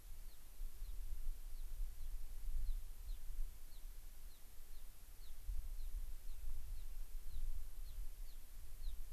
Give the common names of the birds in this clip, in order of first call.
Gray-crowned Rosy-Finch